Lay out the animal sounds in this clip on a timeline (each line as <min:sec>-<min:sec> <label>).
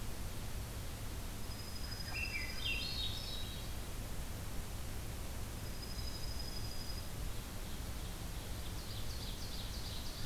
0:01.4-0:03.2 Dark-eyed Junco (Junco hyemalis)
0:01.8-0:03.7 Swainson's Thrush (Catharus ustulatus)
0:05.5-0:07.1 Dark-eyed Junco (Junco hyemalis)
0:05.9-0:06.9 Black-capped Chickadee (Poecile atricapillus)
0:07.1-0:10.3 Ovenbird (Seiurus aurocapilla)